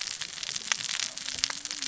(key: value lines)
label: biophony, cascading saw
recorder: SoundTrap 600 or HydroMoth